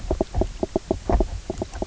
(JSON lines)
{"label": "biophony, knock croak", "recorder": "SoundTrap 300"}